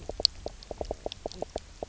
{"label": "biophony, knock croak", "recorder": "SoundTrap 300"}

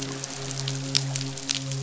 {"label": "biophony, midshipman", "recorder": "SoundTrap 500"}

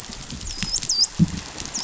{"label": "biophony, dolphin", "recorder": "SoundTrap 500"}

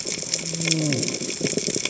{"label": "biophony, cascading saw", "recorder": "HydroMoth"}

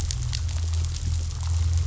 {"label": "anthrophony, boat engine", "recorder": "SoundTrap 500"}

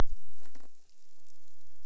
{"label": "biophony", "recorder": "SoundTrap 300"}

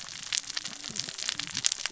{"label": "biophony, cascading saw", "recorder": "SoundTrap 600 or HydroMoth"}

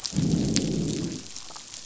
{"label": "biophony, growl", "recorder": "SoundTrap 500"}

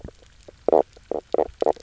{"label": "biophony, knock croak", "recorder": "SoundTrap 300"}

